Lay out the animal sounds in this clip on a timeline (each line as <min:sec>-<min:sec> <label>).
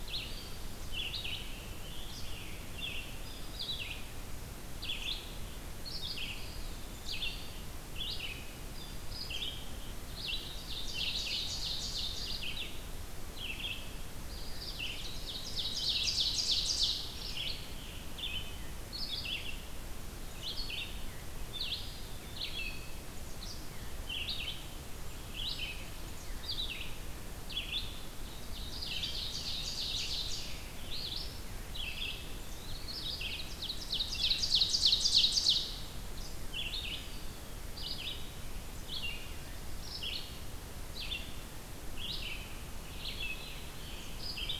0:00.0-0:44.6 Red-eyed Vireo (Vireo olivaceus)
0:01.2-0:03.4 Scarlet Tanager (Piranga olivacea)
0:06.3-0:07.6 Eastern Wood-Pewee (Contopus virens)
0:10.4-0:12.7 Ovenbird (Seiurus aurocapilla)
0:14.8-0:17.1 Ovenbird (Seiurus aurocapilla)
0:16.6-0:18.6 Scarlet Tanager (Piranga olivacea)
0:21.5-0:23.0 Eastern Wood-Pewee (Contopus virens)
0:28.2-0:30.7 Ovenbird (Seiurus aurocapilla)
0:31.7-0:33.1 Eastern Wood-Pewee (Contopus virens)
0:33.4-0:35.8 Ovenbird (Seiurus aurocapilla)
0:36.6-0:37.5 Eastern Wood-Pewee (Contopus virens)
0:42.9-0:44.1 Eastern Wood-Pewee (Contopus virens)